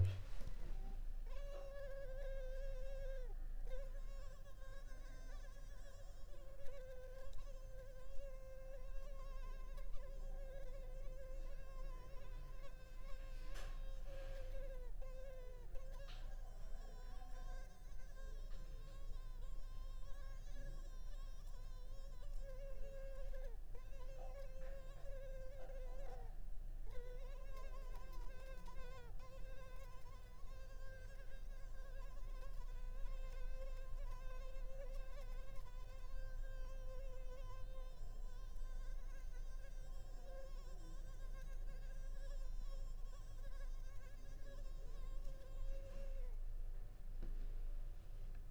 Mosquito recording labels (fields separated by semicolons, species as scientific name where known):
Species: Culex pipiens complex; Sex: female; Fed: unfed; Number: one; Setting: cup